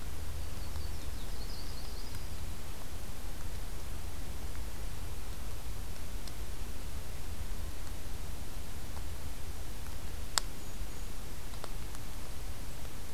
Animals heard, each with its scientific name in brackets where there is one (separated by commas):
Golden-crowned Kinglet (Regulus satrapa), Yellow-rumped Warbler (Setophaga coronata)